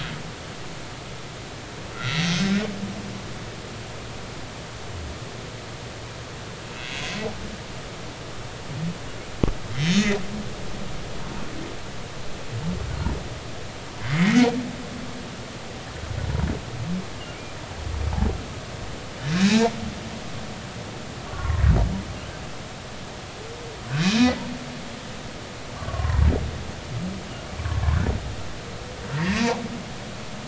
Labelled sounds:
2.0	2.3	humpback whale, 1.8 to 4.0 kHz
9.7	10.2	humpback whale, 2.9 to 5.6 kHz
14.1	14.4	humpback whale, 1.8 to 2.3 kHz
19.4	19.7	humpback whale, 1.6 to 1.9 kHz
21.2	21.6	humpback whale, 0.99 to 1.2 kHz
24.0	24.3	humpback whale, 2.4 to 2.6 kHz
25.8	26.2	humpback whale, 0.90 to 1.2 kHz
29.2	29.5	humpback whale, 1.8 to 2.0 kHz

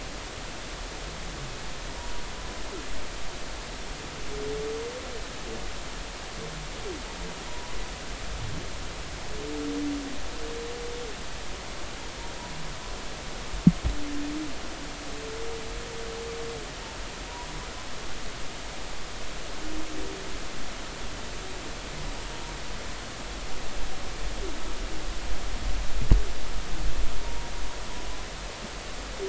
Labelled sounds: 1.9	2.2	humpback whale, 0.90 to 1.0 kHz
7.5	7.7	humpback whale, 0.90 to 0.99 kHz

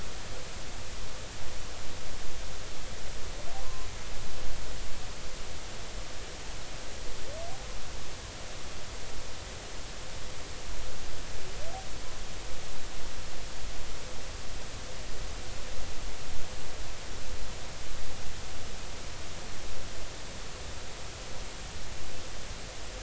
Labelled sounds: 3.6	3.9	humpback whale, 0.99 to 1.1 kHz

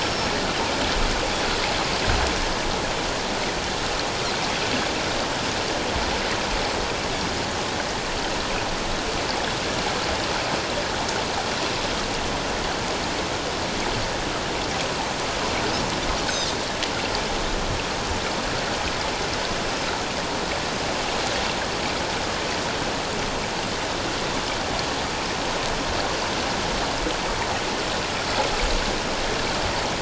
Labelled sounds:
0.0	0.3	Pacific white-sided dolphin, 5.3 to 5.5 kHz
16.3	16.6	Pacific white-sided dolphin, 3.5 to 3.8 kHz

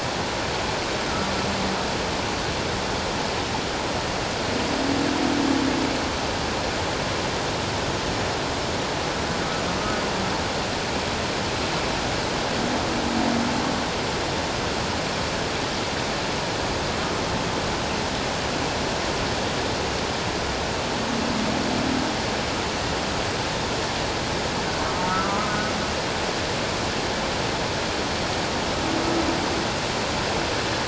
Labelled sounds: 25.2	25.6	humpback whale, 1.2 to 1.3 kHz

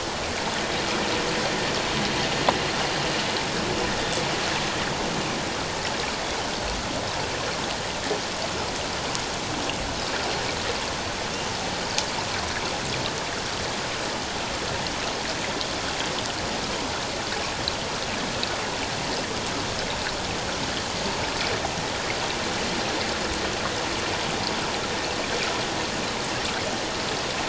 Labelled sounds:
4.0	4.3	Pacific white-sided dolphin, 3.3 to 3.6 kHz

